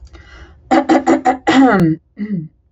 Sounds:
Throat clearing